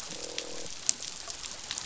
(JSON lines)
{"label": "biophony, croak", "recorder": "SoundTrap 500"}